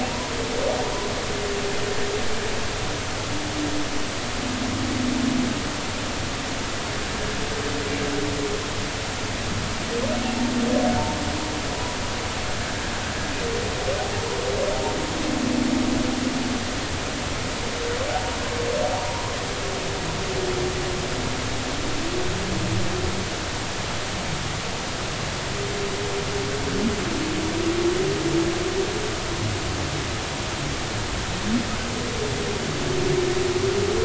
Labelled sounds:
19.0	19.4	humpback whale, 0.86 to 1.1 kHz

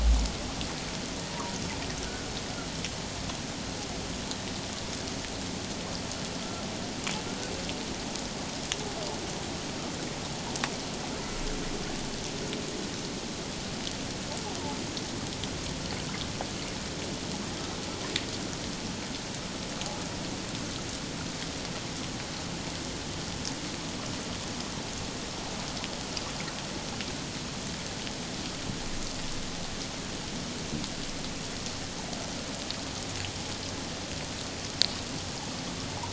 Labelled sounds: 2.0	2.3	humpback whale, 1.4 to 1.6 kHz

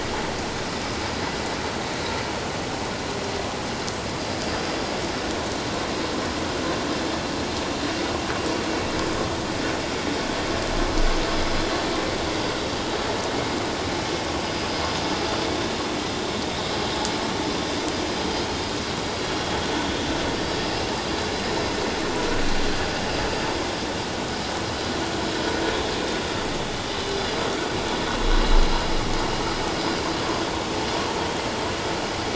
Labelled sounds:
14.4	14.7	vessel noise, 4.8 to 5.1 kHz

